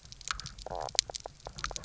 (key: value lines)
label: biophony, knock croak
recorder: SoundTrap 300